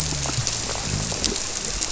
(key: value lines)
label: biophony
recorder: SoundTrap 300